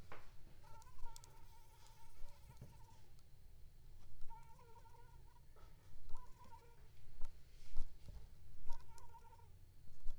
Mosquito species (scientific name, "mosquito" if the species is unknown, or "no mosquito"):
Anopheles funestus s.l.